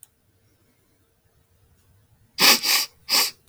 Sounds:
Sniff